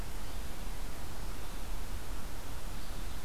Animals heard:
Red-eyed Vireo (Vireo olivaceus)

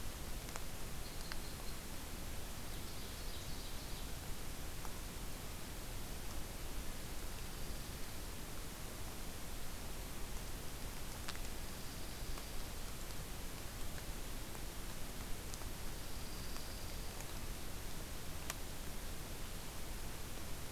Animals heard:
Ovenbird (Seiurus aurocapilla)
Dark-eyed Junco (Junco hyemalis)
Red Crossbill (Loxia curvirostra)

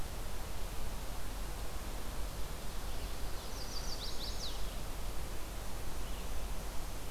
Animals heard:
Chestnut-sided Warbler (Setophaga pensylvanica)

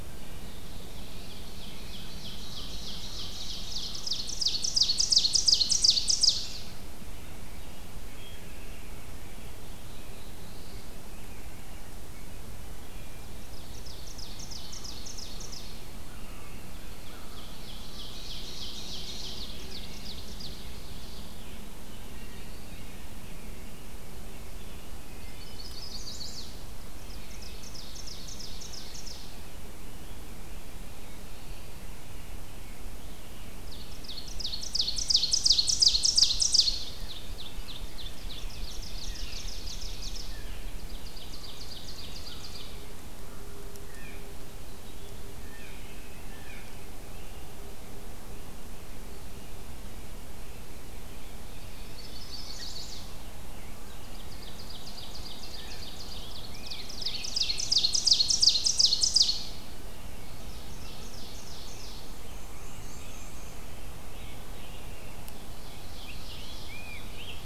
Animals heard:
Scarlet Tanager (Piranga olivacea)
Wood Thrush (Hylocichla mustelina)
Black-throated Blue Warbler (Setophaga caerulescens)
Chestnut-sided Warbler (Setophaga pensylvanica)
Ovenbird (Seiurus aurocapilla)
Black-and-white Warbler (Mniotilta varia)
Rose-breasted Grosbeak (Pheucticus ludovicianus)
American Crow (Corvus brachyrhynchos)
Blue Jay (Cyanocitta cristata)
American Robin (Turdus migratorius)

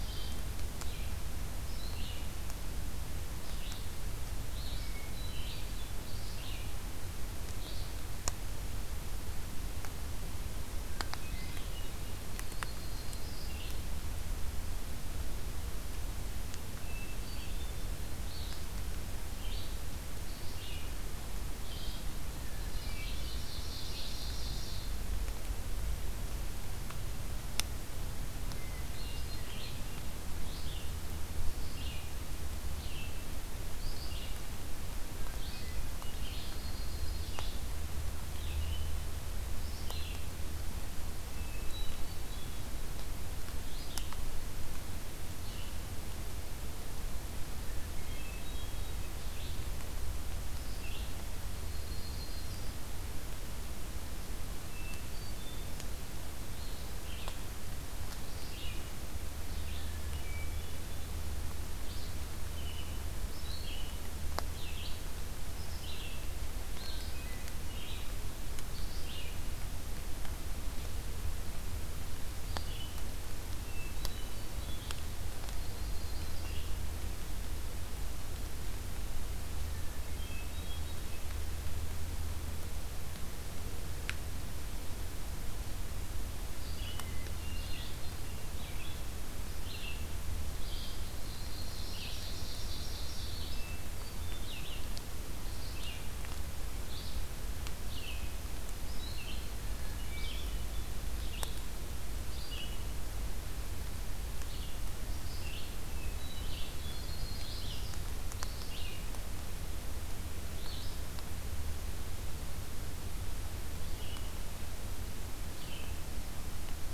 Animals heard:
Ovenbird (Seiurus aurocapilla)
Yellow-rumped Warbler (Setophaga coronata)
Red-eyed Vireo (Vireo olivaceus)
Hermit Thrush (Catharus guttatus)

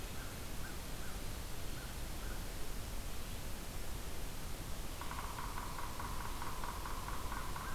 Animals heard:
American Crow (Corvus brachyrhynchos)
Yellow-bellied Sapsucker (Sphyrapicus varius)

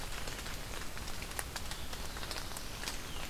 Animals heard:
Black-throated Blue Warbler (Setophaga caerulescens)

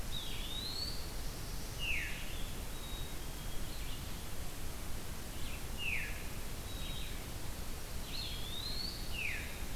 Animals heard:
Veery (Catharus fuscescens)
Black-throated Blue Warbler (Setophaga caerulescens)
Red-eyed Vireo (Vireo olivaceus)
Eastern Wood-Pewee (Contopus virens)
Black-capped Chickadee (Poecile atricapillus)

